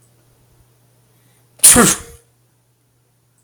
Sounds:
Sneeze